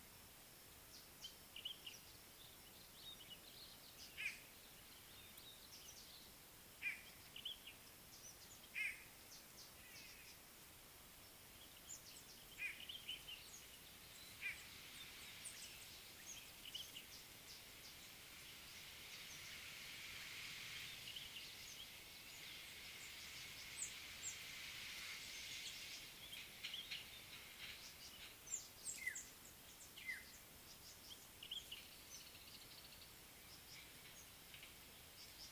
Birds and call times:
White-bellied Go-away-bird (Corythaixoides leucogaster): 4.2s, 12.6s
Speckled Mousebird (Colius striatus): 28.6s
African Black-headed Oriole (Oriolus larvatus): 29.1s
Common Bulbul (Pycnonotus barbatus): 31.5s

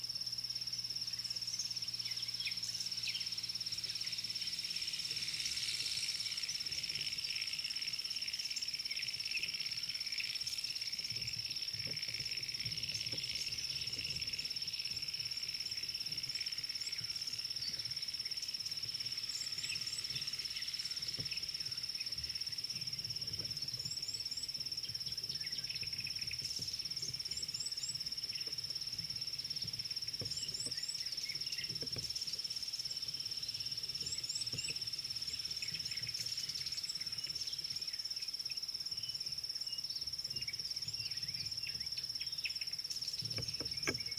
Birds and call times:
Red-cheeked Cordonbleu (Uraeginthus bengalus): 30.6s, 34.3s

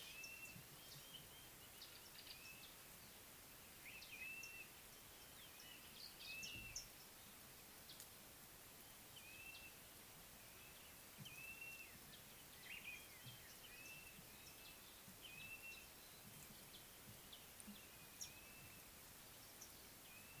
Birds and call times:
Blue-naped Mousebird (Urocolius macrourus): 4.3s, 11.6s
Mariqua Sunbird (Cinnyris mariquensis): 6.8s

